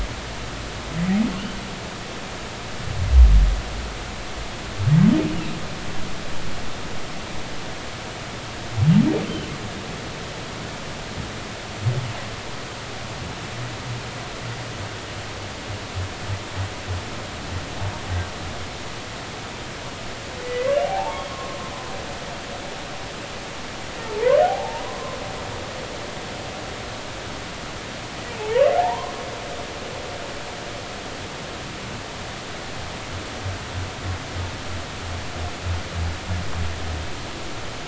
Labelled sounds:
20.4	21.3	humpback whale, 0.80 to 3.4 kHz
24.1	25.2	humpback whale, 0.80 to 1.2 kHz
28.4	29.1	humpback whale, 0.80 to 1.2 kHz

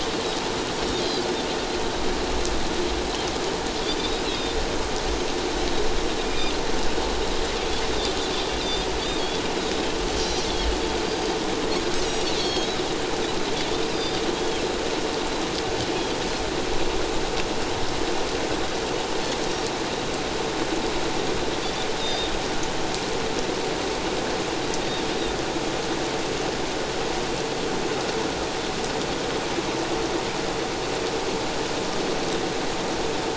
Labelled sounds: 3.8	4.6	Pacific white-sided dolphin, 3.5 to 4.9 kHz
6.3	6.5	Pacific white-sided dolphin, 2.3 to 2.5 kHz
8.6	8.9	Pacific white-sided dolphin, 3.5 to 4.9 kHz
10.2	10.5	Pacific white-sided dolphin, 5.6 to 6.0 kHz
11.1	11.4	Pacific white-sided dolphin, 4.6 to 4.8 kHz
12.3	12.7	Pacific white-sided dolphin, 3.2 to 4.6 kHz
13.9	14.6	Pacific white-sided dolphin, 3.0 to 4.9 kHz
22.0	22.3	Pacific white-sided dolphin, 3.6 to 3.8 kHz

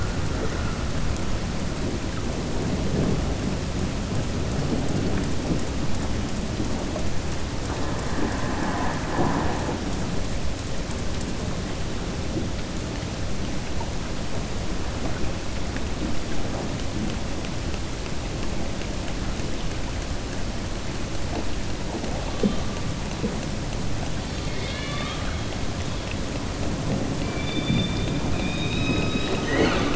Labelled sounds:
24.2	25.4	killer whale, southern resident, 1.2 to 5.1 kHz

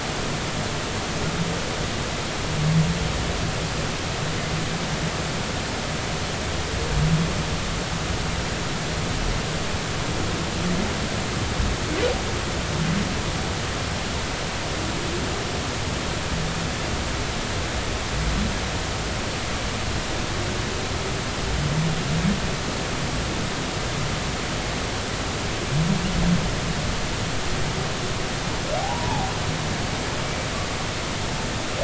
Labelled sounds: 28.8	29.3	humpback whale, 0.80 to 1.0 kHz

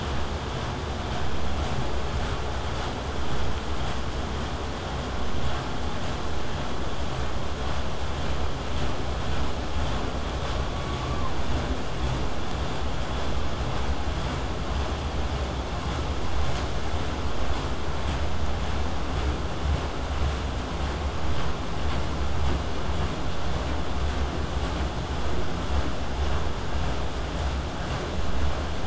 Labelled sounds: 10.4	11.4	killer whale, southern resident, 0.84 to 1.3 kHz

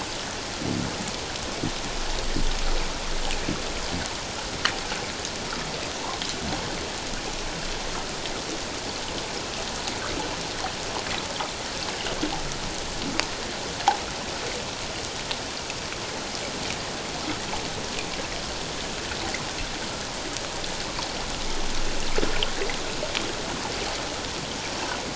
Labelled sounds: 6.0	6.2	water noise, 0.84 to 1.2 kHz

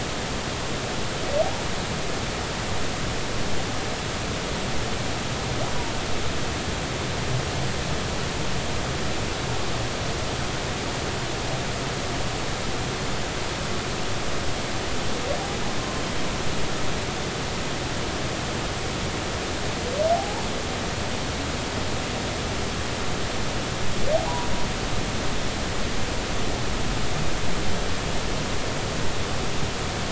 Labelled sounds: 20.1	20.4	humpback whale, 0.80 to 0.96 kHz
24.1	24.5	humpback whale, 0.80 to 1.0 kHz

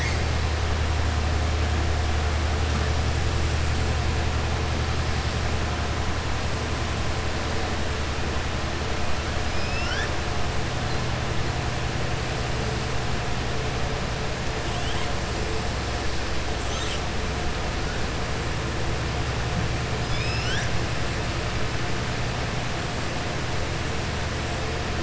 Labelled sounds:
9.5	10.1	killer whale, southern resident, 1.3 to 5.9 kHz

